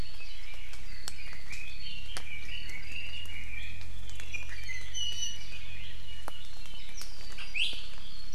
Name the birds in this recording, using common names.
Red-billed Leiothrix, Iiwi